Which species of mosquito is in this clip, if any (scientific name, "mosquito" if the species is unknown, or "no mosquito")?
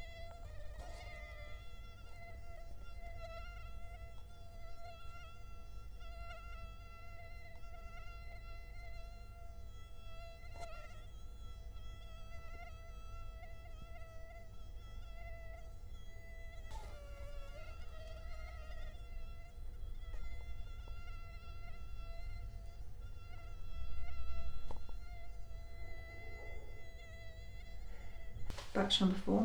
Culex quinquefasciatus